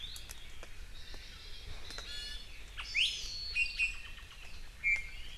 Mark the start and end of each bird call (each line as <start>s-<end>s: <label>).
0.0s-0.3s: Iiwi (Drepanis coccinea)
0.9s-2.0s: Japanese Bush Warbler (Horornis diphone)
2.0s-3.6s: Hawaii Amakihi (Chlorodrepanis virens)
2.9s-3.1s: Iiwi (Drepanis coccinea)
3.5s-4.3s: Iiwi (Drepanis coccinea)
4.8s-5.3s: Iiwi (Drepanis coccinea)